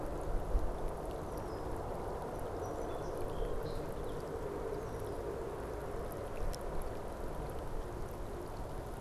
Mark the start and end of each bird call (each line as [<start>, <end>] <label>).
[1.08, 1.69] Red-winged Blackbird (Agelaius phoeniceus)
[2.29, 4.38] Song Sparrow (Melospiza melodia)